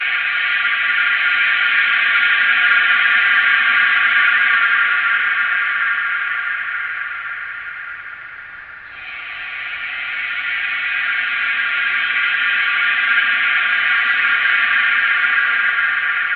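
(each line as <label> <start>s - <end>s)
Air blowing through a long metal tube, followed by a strong, resonant echo. 0.0s - 8.2s
Air blowing through a long metal tube, followed by a strong, resonant echo. 9.3s - 16.4s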